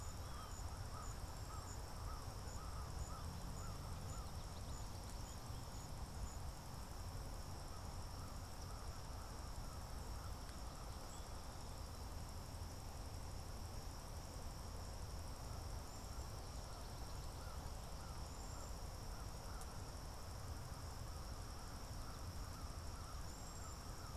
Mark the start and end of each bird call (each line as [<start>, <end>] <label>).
[0.00, 1.04] American Goldfinch (Spinus tristis)
[0.00, 24.16] American Crow (Corvus brachyrhynchos)
[15.74, 24.16] Cedar Waxwing (Bombycilla cedrorum)